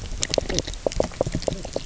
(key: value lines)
label: biophony, knock croak
recorder: SoundTrap 300